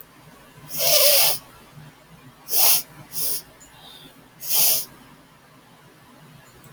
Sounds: Sniff